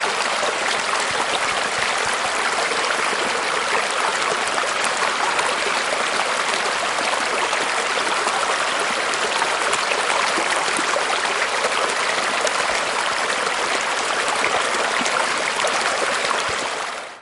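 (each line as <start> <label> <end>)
0.0 Rain splashes into water. 17.0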